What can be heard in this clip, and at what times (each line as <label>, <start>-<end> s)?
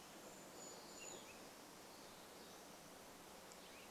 Brown Creeper call, 0-2 s
Cassin's Vireo song, 0-4 s